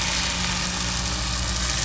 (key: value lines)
label: anthrophony, boat engine
recorder: SoundTrap 500